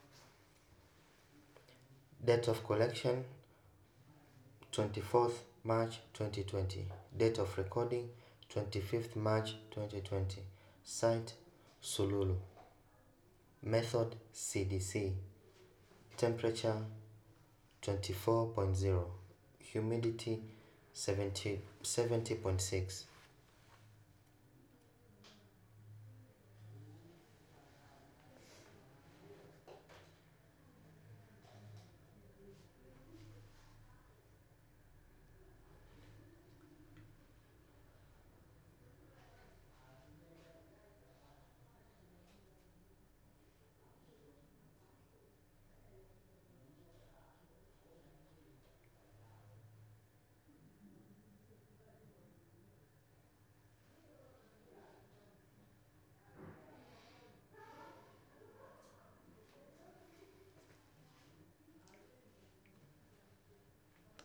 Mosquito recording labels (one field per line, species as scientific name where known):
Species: no mosquito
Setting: cup